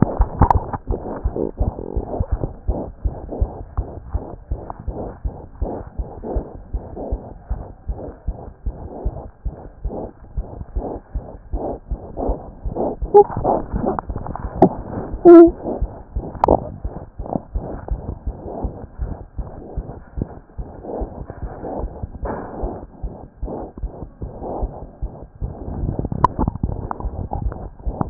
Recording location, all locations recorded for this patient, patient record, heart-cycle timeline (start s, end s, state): aortic valve (AV)
aortic valve (AV)+mitral valve (MV)
#Age: Infant
#Sex: Female
#Height: 67.0 cm
#Weight: 5.7 kg
#Pregnancy status: False
#Murmur: Present
#Murmur locations: aortic valve (AV)+mitral valve (MV)
#Most audible location: mitral valve (MV)
#Systolic murmur timing: Holosystolic
#Systolic murmur shape: Plateau
#Systolic murmur grading: I/VI
#Systolic murmur pitch: High
#Systolic murmur quality: Harsh
#Diastolic murmur timing: nan
#Diastolic murmur shape: nan
#Diastolic murmur grading: nan
#Diastolic murmur pitch: nan
#Diastolic murmur quality: nan
#Outcome: Abnormal
#Campaign: 2014 screening campaign
0.00	3.04	unannotated
3.04	3.16	S1
3.16	3.38	systole
3.38	3.50	S2
3.50	3.76	diastole
3.76	3.88	S1
3.88	4.12	systole
4.12	4.22	S2
4.22	4.50	diastole
4.50	4.60	S1
4.60	4.86	systole
4.86	4.94	S2
4.94	5.24	diastole
5.24	5.34	S1
5.34	5.60	systole
5.60	5.70	S2
5.70	5.98	diastole
5.98	6.08	S1
6.08	6.32	systole
6.32	6.44	S2
6.44	6.74	diastole
6.74	6.84	S1
6.84	7.08	systole
7.08	7.18	S2
7.18	7.50	diastole
7.50	7.62	S1
7.62	7.88	systole
7.88	7.98	S2
7.98	8.28	diastole
8.28	8.36	S1
8.36	8.64	systole
8.64	8.74	S2
8.74	9.04	diastole
9.04	9.14	S1
9.14	9.44	systole
9.44	9.52	S2
9.52	9.84	diastole
9.84	28.10	unannotated